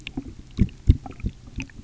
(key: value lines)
label: geophony, waves
recorder: SoundTrap 300